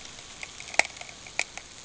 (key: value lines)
label: ambient
recorder: HydroMoth